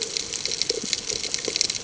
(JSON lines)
{"label": "ambient", "recorder": "HydroMoth"}